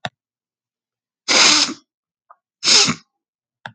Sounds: Sniff